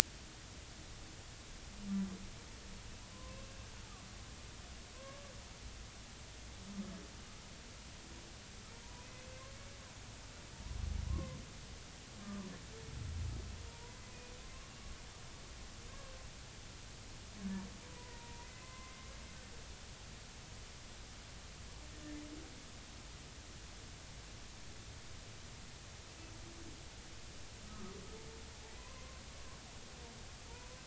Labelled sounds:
5.0	5.3	humpback whale, 0.99 to 1.2 kHz
11.0	11.4	humpback whale, 0.96 to 1.2 kHz
13.7	14.3	humpback whale, 0.90 to 2.6 kHz
17.8	19.0	humpback whale, 0.90 to 2.1 kHz
27.7	28.0	humpback whale, 1.1 to 1.3 kHz
28.8	29.2	humpback whale, 0.96 to 1.1 kHz

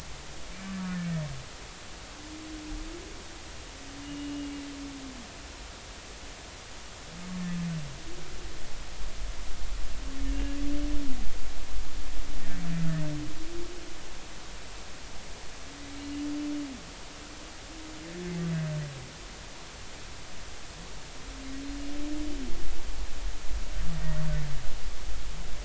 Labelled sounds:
4.0	4.5	humpback whale, 2.7 to 2.9 kHz
10.3	10.6	humpback whale, 1.6 to 2.8 kHz

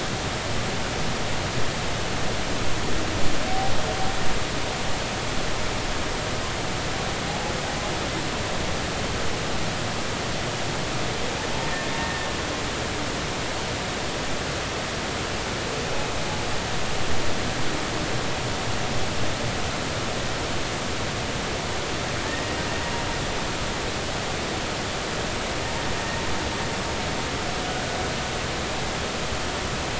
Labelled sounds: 12.0	12.3	humpback whale, 1.7 to 1.9 kHz
22.3	22.6	humpback whale, 1.8 to 1.9 kHz

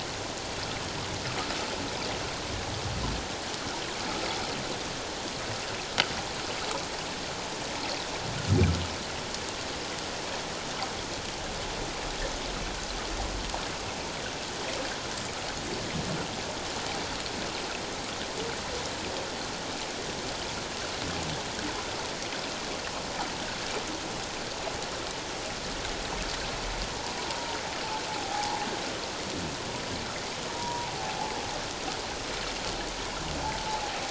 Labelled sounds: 27.2	27.6	humpback whale, 0.88 to 0.97 kHz
28.1	28.6	humpback whale, 0.78 to 1.0 kHz
30.5	31.3	humpback whale, 0.78 to 1.0 kHz
33.7	34.0	humpback whale, 0.78 to 0.97 kHz

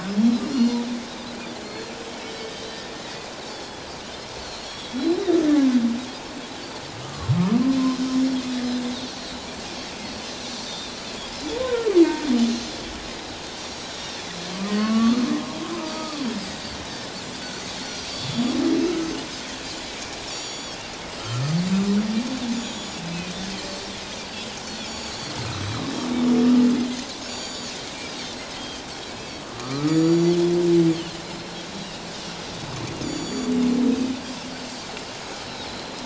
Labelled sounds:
0.4	0.8	Pacific white-sided dolphin, 3.8 to 5.8 kHz
1.6	1.9	Pacific white-sided dolphin, 4.1 to 4.4 kHz
2.2	5.5	Pacific white-sided dolphin, 1.8 to 7.9 kHz
7.0	7.3	humpback whale, 1.0 to 1.3 kHz
9.1	9.5	Pacific white-sided dolphin, 3.7 to 4.7 kHz
10.7	10.9	Pacific white-sided dolphin, 3.5 to 3.8 kHz
11.6	11.9	humpback whale, 1.3 to 1.6 kHz
13.1	14.4	Pacific white-sided dolphin, 3.3 to 7.9 kHz
14.7	15.4	humpback whale, 1.0 to 3.1 kHz
15.8	16.2	humpback whale, 1.2 to 1.3 kHz
15.8	16.3	Pacific white-sided dolphin, 4.4 to 6.0 kHz
17.7	18.6	Pacific white-sided dolphin, 3.3 to 7.0 kHz
20.3	20.8	Pacific white-sided dolphin, 3.2 to 7.0 kHz
22.5	23.0	Pacific white-sided dolphin, 3.0 to 7.0 kHz
24.9	25.3	Pacific white-sided dolphin, 4.4 to 8.0 kHz
27.2	28.8	Pacific white-sided dolphin, 2.9 to 7.0 kHz
29.4	30.0	humpback whale, 1.0 to 1.4 kHz
29.9	30.4	Pacific white-sided dolphin, 4.4 to 7.1 kHz
31.2	32.0	Pacific white-sided dolphin, 3.7 to 5.3 kHz
33.0	33.5	Pacific white-sided dolphin, 3.3 to 7.2 kHz
34.6	34.9	Pacific white-sided dolphin, 4.5 to 7.4 kHz
35.6	36.0	Pacific white-sided dolphin, 4.0 to 4.4 kHz

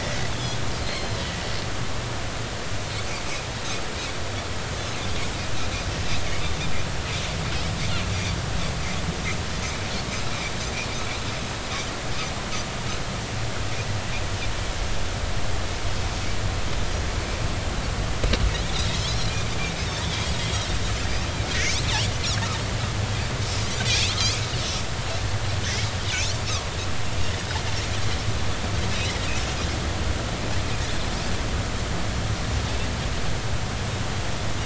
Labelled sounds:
0.8	1.2	Pacific white-sided dolphin, 4.0 to 4.4 kHz
18.7	19.0	Pacific white-sided dolphin, 3.6 to 4.0 kHz
23.8	24.4	Pacific white-sided dolphin, 2.3 to 3.8 kHz

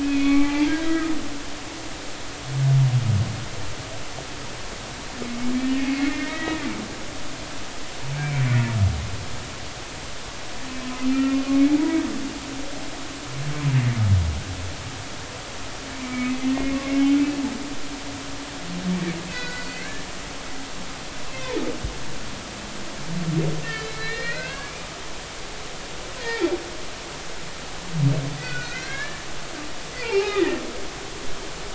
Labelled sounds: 0.0	1.1	humpback whale, 0.80 to 3.4 kHz
1.7	2.1	humpback whale, 1.5 to 1.7 kHz
5.5	6.7	humpback whale, 1.7 to 2.3 kHz
8.1	8.4	humpback whale, 2.2 to 2.4 kHz
11.0	11.4	humpback whale, 1.2 to 2.8 kHz
15.9	16.3	humpback whale, 1.2 to 2.4 kHz
19.3	20.0	humpback whale, 1.4 to 5.0 kHz
21.3	21.5	humpback whale, 2.4 to 2.7 kHz
23.7	24.9	humpback whale, 1.0 to 4.3 kHz
26.2	26.5	humpback whale, 1.7 to 2.4 kHz
28.4	29.2	humpback whale, 1.4 to 3.3 kHz
30.0	30.6	humpback whale, 0.80 to 2.6 kHz

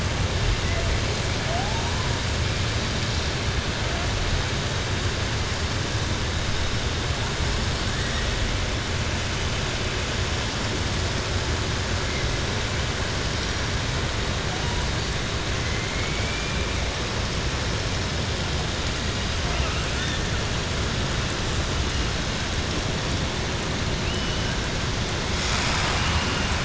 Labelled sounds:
15.6	16.6	killer whale, southern resident, 1.3 to 3.1 kHz

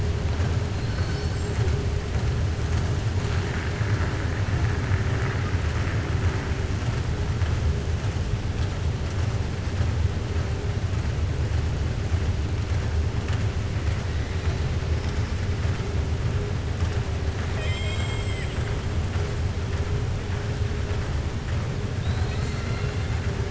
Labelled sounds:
17.4	18.6	killer whale, southern resident, 0.88 to 8.0 kHz

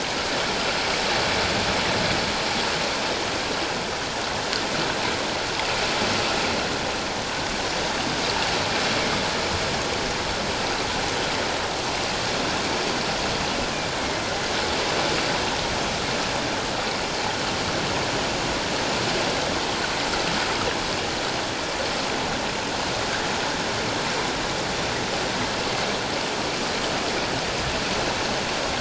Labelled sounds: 14.0	14.2	killer whale, northern resident, A clan, AA subclan, A04 pod, 2.1 to 2.2 kHz

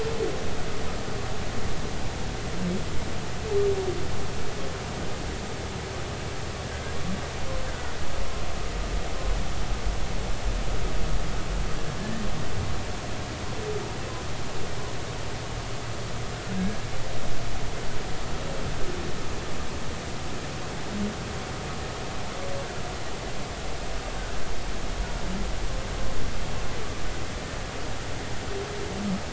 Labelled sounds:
16.5	16.9	humpback whale, 1.6 to 1.7 kHz

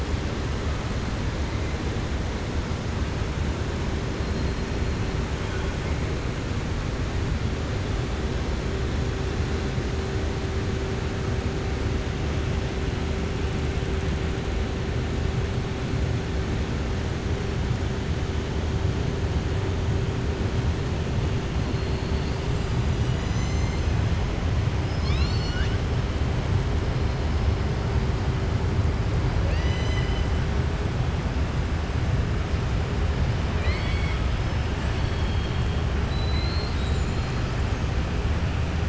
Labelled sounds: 21.7	22.4	killer whale, southern resident, 3.5 to 4.8 kHz
24.8	25.8	killer whale, southern resident, 1.2 to 7.4 kHz
33.5	34.2	killer whale, southern resident, 1.2 to 5.1 kHz
34.8	35.7	killer whale, southern resident, 2.8 to 5.5 kHz
36.0	37.4	killer whale, southern resident, 3.8 to 8.0 kHz

